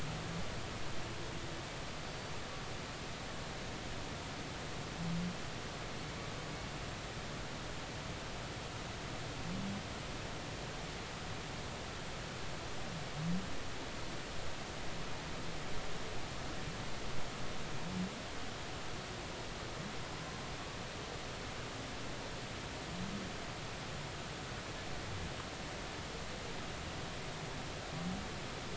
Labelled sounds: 2.0	2.3	humpback whale, 4.5 to 4.6 kHz

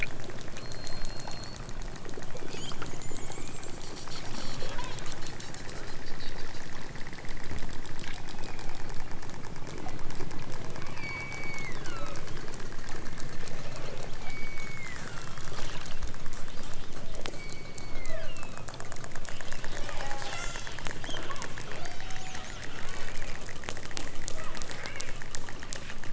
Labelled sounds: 2.4	2.8	killer whale, southern Alaska resident, 2.1 to 8.0 kHz
4.5	5.1	killer whale, southern Alaska resident, 0.37 to 3.4 kHz
8.2	8.9	killer whale, southern Alaska resident, 2.1 to 3.7 kHz
10.9	12.2	killer whale, southern Alaska resident, 0.97 to 8.0 kHz
13.5	15.6	killer whale, southern Alaska resident, 0.92 to 5.0 kHz
17.3	18.7	killer whale, southern Alaska resident, 0.32 to 4.6 kHz
19.9	20.7	killer whale, southern Alaska resident, 0.60 to 8.0 kHz
21.0	22.4	killer whale, southern Alaska resident, 0.46 to 6.2 kHz
24.3	25.2	killer whale, southern Alaska resident, 0.69 to 3.4 kHz

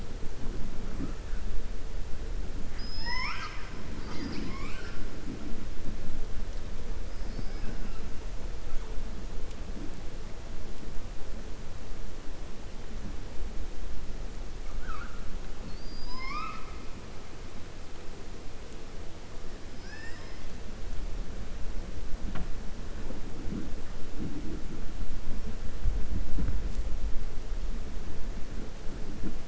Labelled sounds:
2.6	3.7	killer whale, 0.95 to 6.5 kHz
15.6	16.8	killer whale, 0.97 to 5.6 kHz

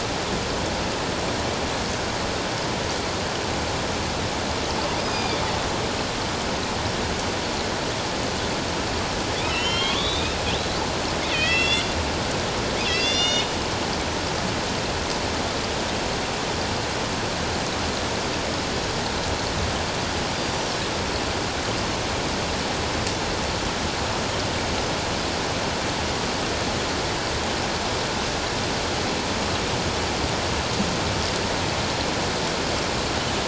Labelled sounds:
5.0	5.4	killer whale, northern resident, A clan, AB subclan, 2.3 to 5.1 kHz
9.4	10.3	killer whale, northern resident, A clan, AB subclan, 1.0 to 5.7 kHz
11.3	11.9	killer whale, northern resident, A clan, AB subclan, 1.8 to 7.8 kHz
12.9	13.6	killer whale, northern resident, A clan, AB subclan, 2.5 to 7.3 kHz
20.5	20.8	killer whale, northern resident, A clan, AB subclan, 5.3 to 5.9 kHz

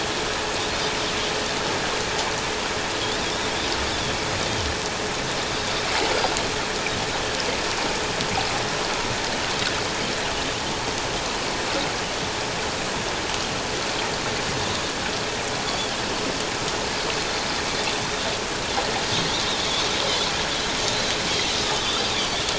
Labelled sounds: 15.6	15.9	Pacific white-sided dolphin, 3.3 to 3.5 kHz
21.8	22.1	Pacific white-sided dolphin, 4.6 to 4.8 kHz

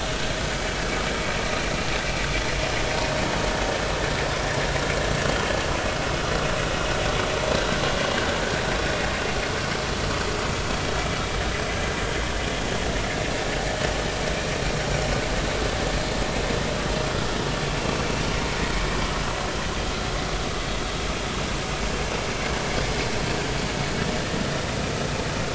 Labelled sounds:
8.8	9.1	vessel noise, 3.4 to 3.6 kHz

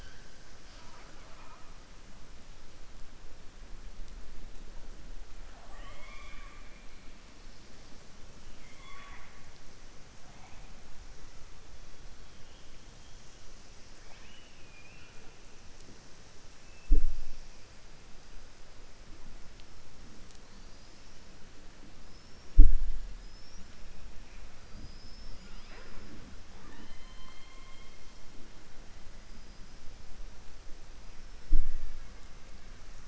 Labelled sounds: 0.6	1.7	killer whale, southern resident, 0.53 to 5.6 kHz
5.4	6.9	killer whale, southern resident, 0.56 to 4.4 kHz
8.5	9.4	killer whale, southern resident, 0.79 to 3.5 kHz
13.9	15.3	killer whale, southern resident, 0.60 to 3.3 kHz
22.0	22.5	killer whale, southern resident, 5.1 to 5.7 kHz

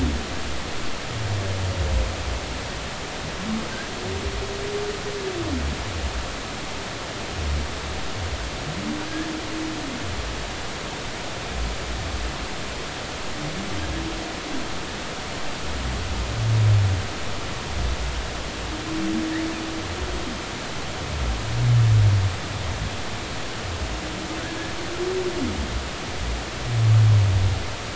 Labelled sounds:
9.1	9.3	humpback whale, 1.6 to 1.8 kHz

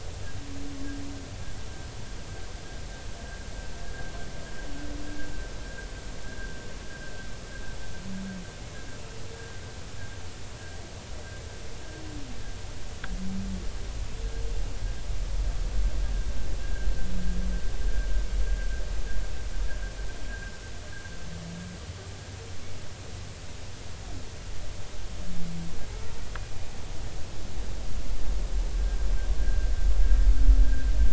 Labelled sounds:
16.6	16.9	humpback whale, 1.5 to 1.7 kHz
20.3	20.5	humpback whale, 1.5 to 1.7 kHz
28.7	29.7	humpback whale, 1.5 to 1.7 kHz

